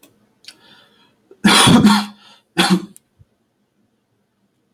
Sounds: Cough